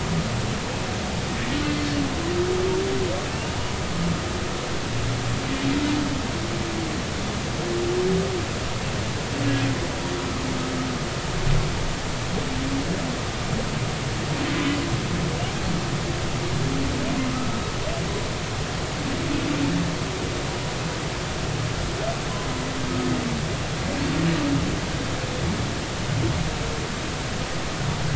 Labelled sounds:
3.3	3.5	humpback whale, 2.5 to 2.8 kHz

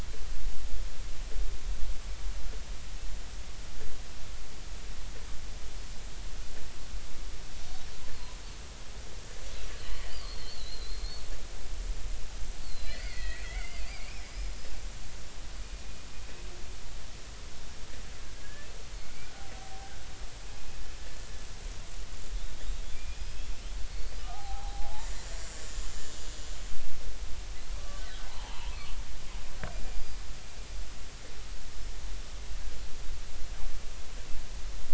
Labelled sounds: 9.8	11.0	killer whale, Bigg's (transient), 2.8 to 4.9 kHz
12.6	14.6	killer whale, Bigg's (transient), 1.7 to 5.3 kHz
18.4	18.7	killer whale, Bigg's (transient), 1.6 to 1.8 kHz
19.0	20.0	killer whale, Bigg's (transient), 0.80 to 2.5 kHz
22.9	25.7	killer whale, Bigg's (transient), 0.80 to 7.4 kHz
27.8	28.8	killer whale, Bigg's (transient), 0.80 to 1.2 kHz

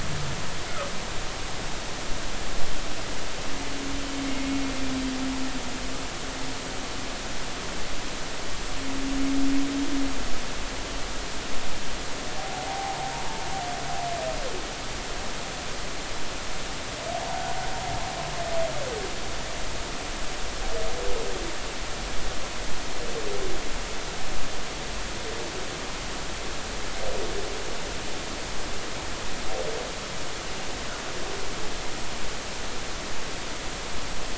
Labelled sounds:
4.3	4.6	humpback whale, 2.1 to 2.2 kHz
12.4	13.0	humpback whale, 0.80 to 0.90 kHz
17.1	17.4	humpback whale, 0.80 to 0.99 kHz

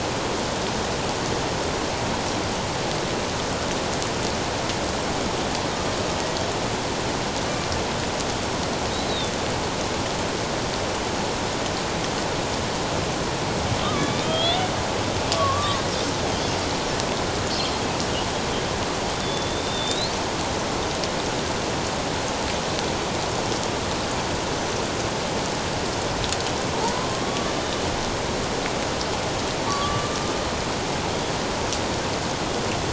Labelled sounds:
8.9	9.3	killer whale, Bigg's (transient), 3.4 to 4.1 kHz
13.8	14.6	killer whale, Bigg's (transient), 1.1 to 3.8 kHz
15.3	15.8	killer whale, Bigg's (transient), 1.0 to 1.2 kHz
19.1	20.2	killer whale, Bigg's (transient), 3.4 to 4.5 kHz
24.5	24.8	killer whale, Bigg's (transient), 5.9 to 6.2 kHz
26.8	27.5	killer whale, Bigg's (transient), 0.84 to 1.2 kHz
29.7	30.1	killer whale, Bigg's (transient), 1.0 to 1.2 kHz

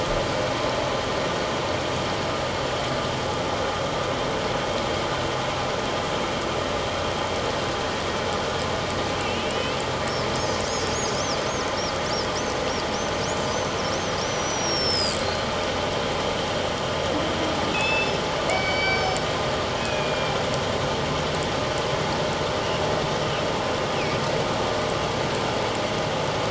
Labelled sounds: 9.2	9.8	killer whale, northern resident, 2.4 to 3.2 kHz
13.5	13.8	killer whale, northern resident, 5.9 to 6.3 kHz
14.2	15.5	killer whale, northern resident, 4.1 to 6.1 kHz
17.7	20.3	killer whale, northern resident, G clan, 2.0 to 7.1 kHz

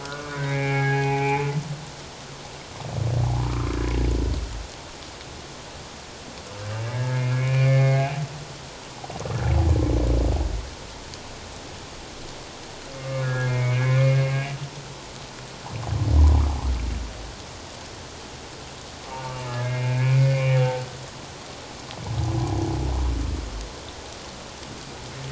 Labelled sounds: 0.0	1.5	humpback whale, 0.78 to 2.7 kHz
3.2	3.7	humpback whale, 0.78 to 1.4 kHz
6.8	8.2	humpback whale, 0.78 to 2.5 kHz
12.9	14.5	humpback whale, 1.3 to 2.5 kHz
16.2	16.4	humpback whale, 0.81 to 1.1 kHz
19.1	20.8	humpback whale, 0.78 to 2.9 kHz

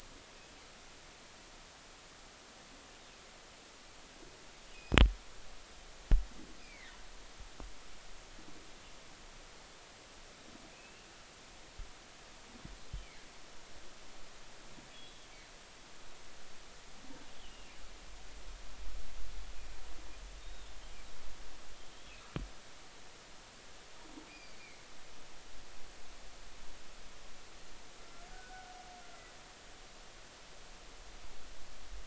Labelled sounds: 4.7	5.0	humpback whale, 2.4 to 5.1 kHz
6.6	7.0	humpback whale, 1.7 to 2.6 kHz
10.7	11.1	humpback whale, 2.4 to 2.9 kHz
14.9	15.3	humpback whale, 3.3 to 3.5 kHz
17.4	17.7	humpback whale, 2.7 to 3.5 kHz
20.4	20.7	humpback whale, 3.6 to 3.8 kHz
24.3	24.6	humpback whale, 2.2 to 5.0 kHz
28.0	28.7	humpback whale, 1.3 to 1.6 kHz

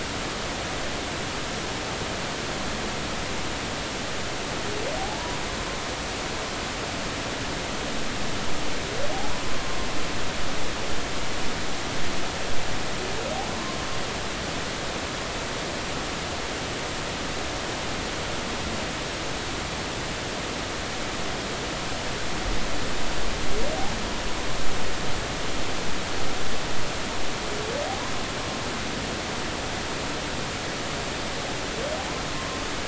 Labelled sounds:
5.0	5.4	humpback whale, 0.80 to 1.0 kHz
9.3	9.6	humpback whale, 0.96 to 1.1 kHz
32.0	32.2	humpback whale, 0.80 to 1.1 kHz

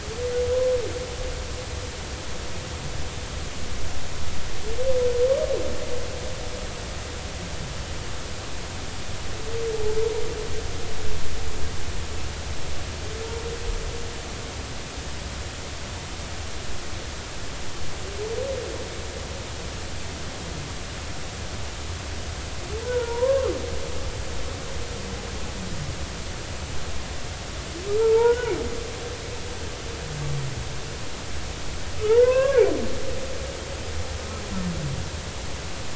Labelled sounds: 22.8	23.5	humpback whale, 0.90 to 1.6 kHz
28.0	28.5	humpback whale, 0.83 to 1.5 kHz
32.0	32.6	humpback whale, 0.83 to 2.8 kHz

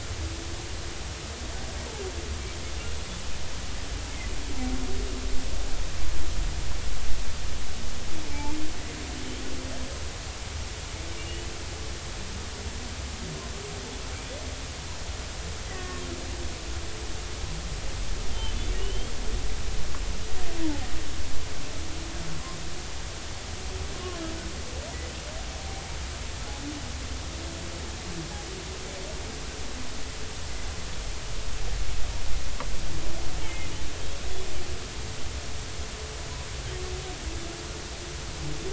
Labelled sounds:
8.3	8.6	humpback whale, 0.80 to 2.4 kHz
11.2	11.5	humpback whale, 2.7 to 3.1 kHz
15.7	16.0	humpback whale, 1.1 to 2.0 kHz
18.3	19.1	humpback whale, 2.8 to 3.4 kHz
20.6	20.9	humpback whale, 0.80 to 1.0 kHz
23.9	24.2	humpback whale, 1.0 to 1.2 kHz
33.4	33.7	humpback whale, 2.0 to 2.3 kHz

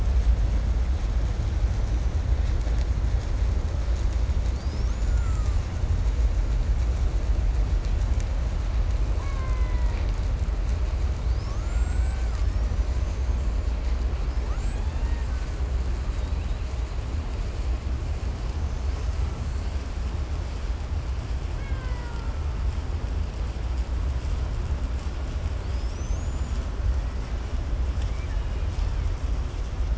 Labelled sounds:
1.1	2.4	killer whale, 5.5 to 6.4 kHz
4.3	6.1	killer whale, Bigg's (transient), 0.66 to 7.8 kHz
9.0	10.5	killer whale, Bigg's (transient), call T08, 0.58 to 5.7 kHz
11.3	15.8	killer whale, Bigg's (transient), 0.42 to 8.0 kHz
15.9	20.7	killer whale, 0.59 to 8.0 kHz
21.4	22.9	killer whale, Bigg's (transient), call T08, 0.52 to 7.0 kHz
25.4	29.2	killer whale, 1.2 to 8.0 kHz

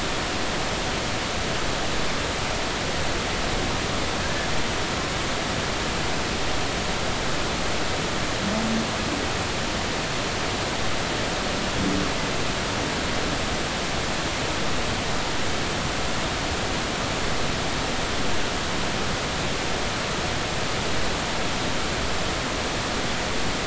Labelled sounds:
4.2	4.5	humpback whale, 1.5 to 1.8 kHz

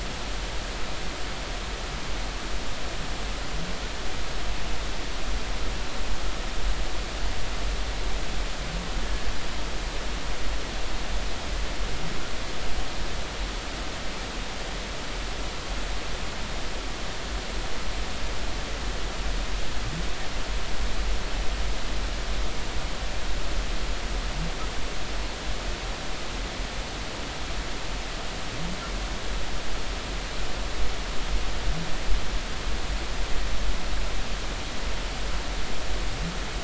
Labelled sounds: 9.0	9.3	humpback whale, 1.6 to 1.8 kHz

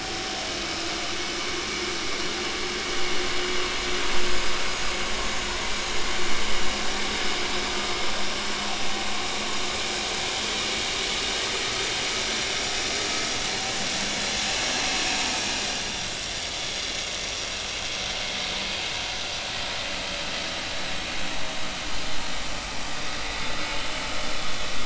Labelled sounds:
14.7	15.0	vessel noise, 2.6 to 2.8 kHz

